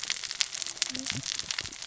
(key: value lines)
label: biophony, cascading saw
recorder: SoundTrap 600 or HydroMoth